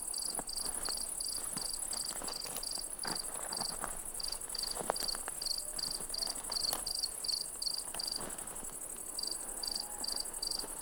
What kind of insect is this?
orthopteran